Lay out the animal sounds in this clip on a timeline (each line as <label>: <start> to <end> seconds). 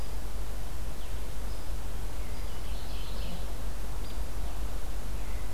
Mourning Warbler (Geothlypis philadelphia): 2.6 to 3.4 seconds
Hairy Woodpecker (Dryobates villosus): 4.0 to 4.3 seconds